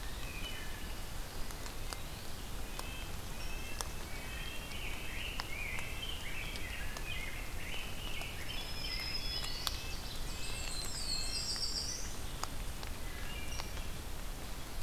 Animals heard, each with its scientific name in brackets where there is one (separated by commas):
Black-throated Blue Warbler (Setophaga caerulescens), Rose-breasted Grosbeak (Pheucticus ludovicianus), Black-throated Green Warbler (Setophaga virens), Eastern Wood-Pewee (Contopus virens), Ovenbird (Seiurus aurocapilla), Wood Thrush (Hylocichla mustelina), Red-breasted Nuthatch (Sitta canadensis), Black-and-white Warbler (Mniotilta varia)